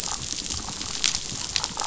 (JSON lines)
{"label": "biophony, damselfish", "recorder": "SoundTrap 500"}